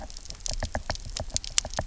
{"label": "biophony, knock", "recorder": "SoundTrap 300"}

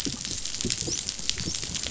{"label": "biophony, dolphin", "recorder": "SoundTrap 500"}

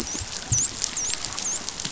{"label": "biophony, dolphin", "recorder": "SoundTrap 500"}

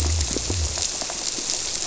{"label": "biophony", "recorder": "SoundTrap 300"}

